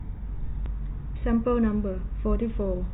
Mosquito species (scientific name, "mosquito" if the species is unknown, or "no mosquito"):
no mosquito